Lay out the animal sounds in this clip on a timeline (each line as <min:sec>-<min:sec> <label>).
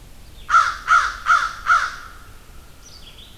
0:00.0-0:03.4 Red-eyed Vireo (Vireo olivaceus)
0:00.3-0:02.4 American Crow (Corvus brachyrhynchos)